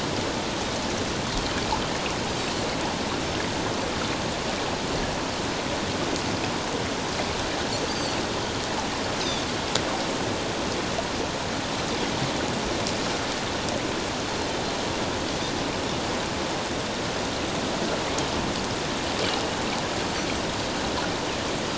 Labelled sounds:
7.9	8.2	Pacific white-sided dolphin, 4.3 to 4.8 kHz
9.2	9.5	Pacific white-sided dolphin, 3.4 to 4.1 kHz

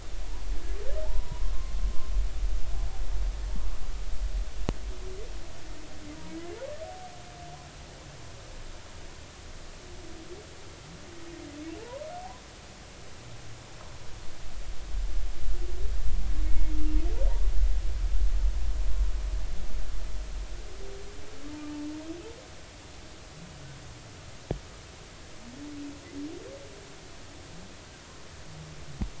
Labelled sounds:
1.0	1.4	humpback whale, 0.80 to 1.1 kHz
6.3	6.6	humpback whale, 1.6 to 1.8 kHz
16.4	16.7	humpback whale, 2.1 to 2.2 kHz

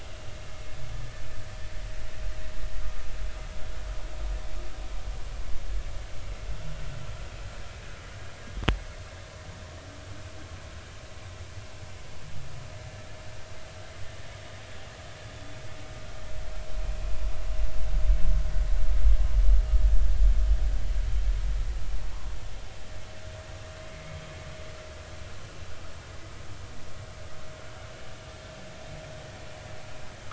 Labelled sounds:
23.9	24.1	vessel noise, 2.0 to 2.2 kHz

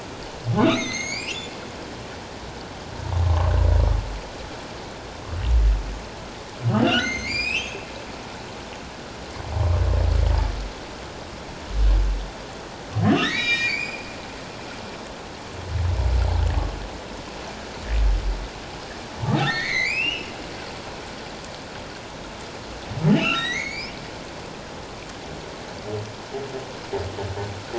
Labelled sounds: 0.6	1.5	humpback whale, 1.0 to 7.8 kHz
3.2	3.5	humpback whale, 0.97 to 1.2 kHz
6.7	7.9	humpback whale, 1.3 to 7.9 kHz
13.2	14.1	humpback whale, 1.7 to 7.4 kHz
19.4	20.3	humpback whale, 1.7 to 6.5 kHz
23.1	24.0	humpback whale, 1.8 to 7.1 kHz

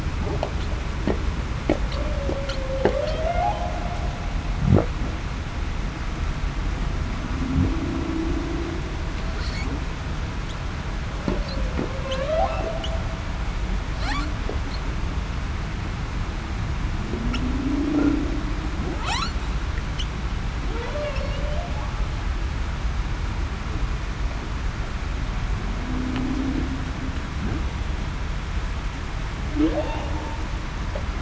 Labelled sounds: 1.9	2.9	humpback whale, 0.47 to 0.63 kHz
7.3	7.7	humpback whale, 0.19 to 0.35 kHz
12.0	12.5	humpback whale, 0.49 to 0.87 kHz
17.6	18.0	humpback whale, 0.23 to 0.35 kHz
20.7	21.7	humpback whale, 0.42 to 0.73 kHz
25.9	26.6	humpback whale, 0.23 to 0.35 kHz

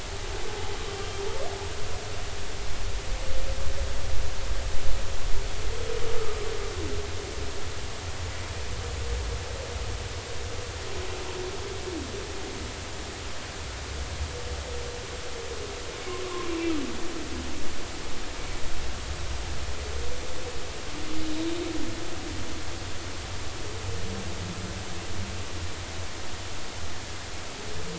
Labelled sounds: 16.2	16.5	humpback whale, 0.99 to 1.2 kHz

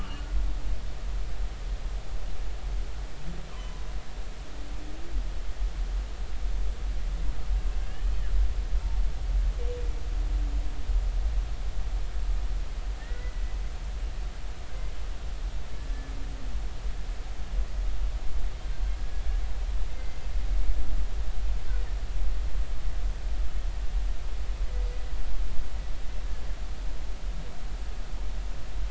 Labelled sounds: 0.0	0.2	humpback whale, 2.7 to 3.1 kHz
7.8	8.1	humpback whale, 1.6 to 1.8 kHz
13.0	13.3	humpback whale, 1.7 to 2.0 kHz
19.9	20.2	humpback whale, 2.0 to 2.1 kHz
20.5	20.8	humpback whale, 2.2 to 2.3 kHz

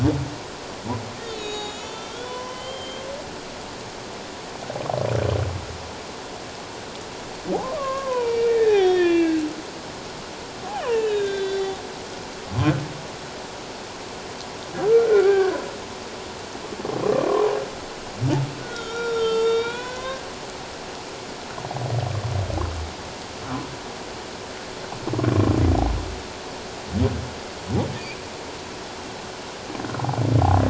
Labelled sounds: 1.2	3.1	humpback whale, 0.94 to 7.2 kHz
7.7	9.4	humpback whale, 0.78 to 5.8 kHz
10.8	11.8	humpback whale, 1.5 to 5.6 kHz
14.9	15.5	humpback whale, 1.3 to 2.4 kHz
18.6	20.2	humpback whale, 0.91 to 7.0 kHz

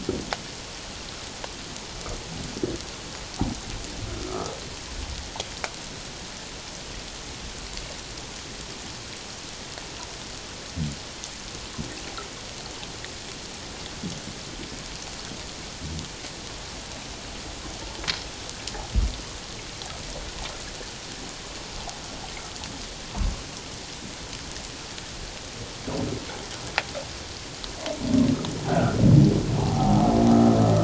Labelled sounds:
28.7	29.0	humpback whale, 1.2 to 1.6 kHz
29.6	30.0	humpback whale, 0.78 to 0.94 kHz

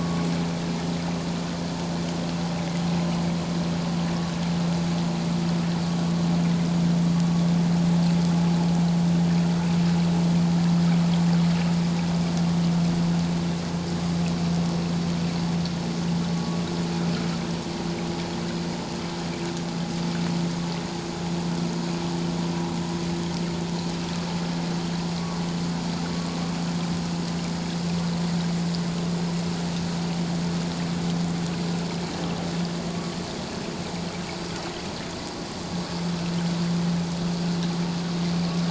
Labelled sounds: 16.3	16.6	vessel noise, 1.1 to 1.2 kHz
32.9	33.2	vessel noise, 1.1 to 1.2 kHz

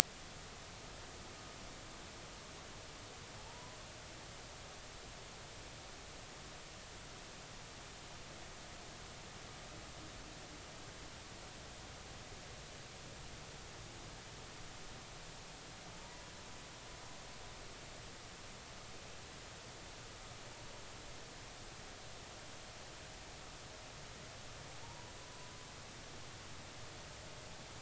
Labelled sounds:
3.4	3.8	humpback whale, 0.83 to 1.1 kHz
17.0	17.3	humpback whale, 0.90 to 1.0 kHz
24.8	25.5	humpback whale, 0.86 to 1.1 kHz

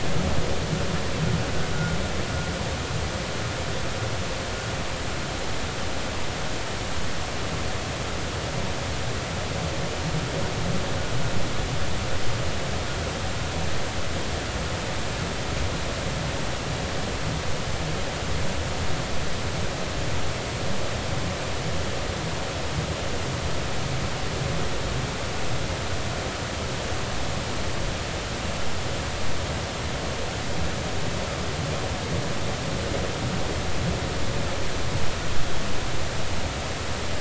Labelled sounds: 1.7	2.0	vessel noise, 1.4 to 1.5 kHz

